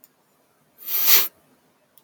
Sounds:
Sniff